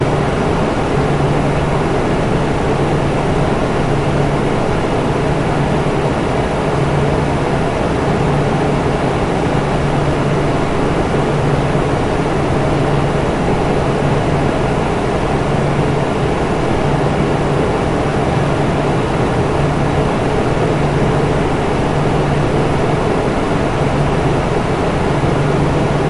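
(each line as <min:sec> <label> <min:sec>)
0:00.0 The noise of a PC fan. 0:26.1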